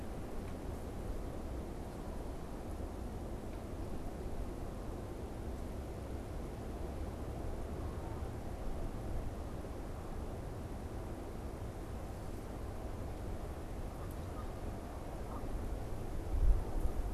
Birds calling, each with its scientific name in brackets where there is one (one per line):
Canada Goose (Branta canadensis)